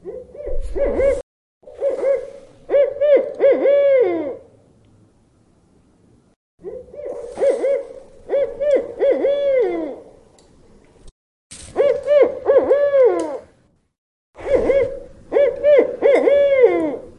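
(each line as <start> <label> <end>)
0.0 An owl hoots repeatedly outdoors. 4.5
3.2 A low click is heard. 3.9
6.6 An owl hoots repeatedly outdoors. 10.2
10.1 A low click is heard. 11.1
11.5 An owl hoots repeatedly outdoors. 13.8
13.1 A low click is heard. 13.6
14.4 An owl hoots repeatedly outdoors. 17.2
15.8 Slow metallic thumping sounds. 16.8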